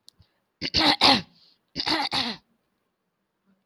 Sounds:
Throat clearing